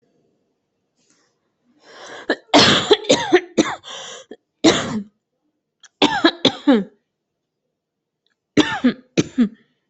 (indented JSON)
{
  "expert_labels": [
    {
      "quality": "good",
      "cough_type": "dry",
      "dyspnea": false,
      "wheezing": false,
      "stridor": false,
      "choking": false,
      "congestion": false,
      "nothing": true,
      "diagnosis": "upper respiratory tract infection",
      "severity": "unknown"
    }
  ],
  "age": 42,
  "gender": "female",
  "respiratory_condition": false,
  "fever_muscle_pain": false,
  "status": "healthy"
}